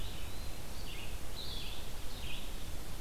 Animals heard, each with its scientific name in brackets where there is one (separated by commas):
Eastern Wood-Pewee (Contopus virens), Red-eyed Vireo (Vireo olivaceus), Blue-headed Vireo (Vireo solitarius)